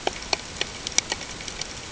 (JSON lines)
{"label": "ambient", "recorder": "HydroMoth"}